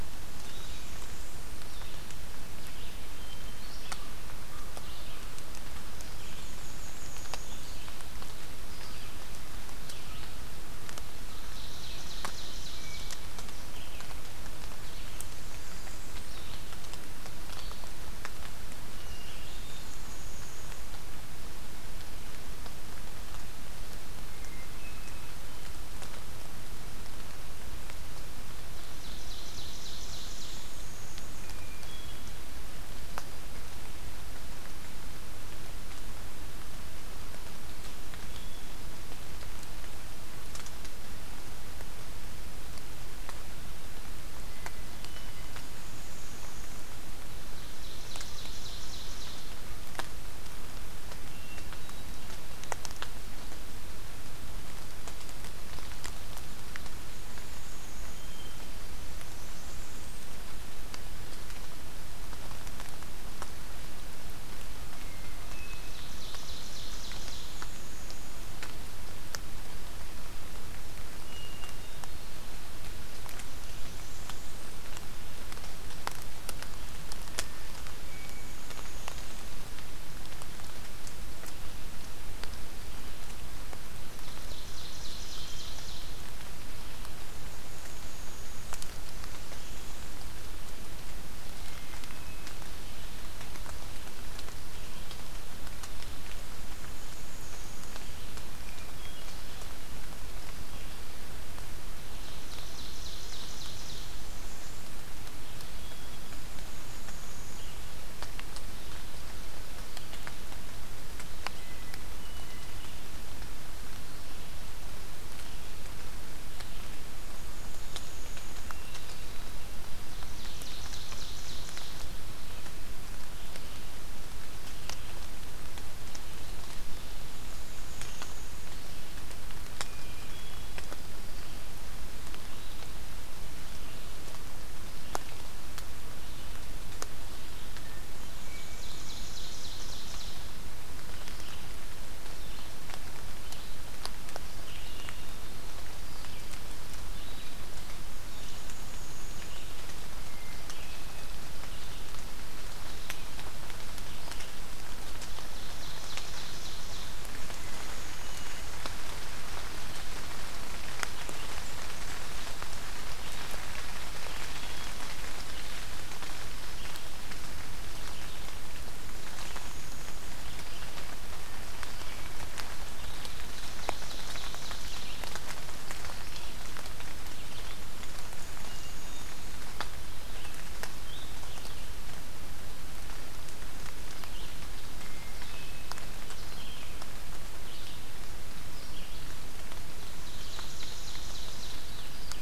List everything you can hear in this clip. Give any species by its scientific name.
Vireo olivaceus, Setophaga fusca, Setophaga americana, Seiurus aurocapilla, Catharus guttatus